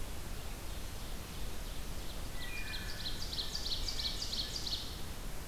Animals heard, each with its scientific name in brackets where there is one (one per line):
Wood Thrush (Hylocichla mustelina)
Hermit Thrush (Catharus guttatus)
Ovenbird (Seiurus aurocapilla)